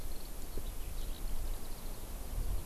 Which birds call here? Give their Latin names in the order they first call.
Alauda arvensis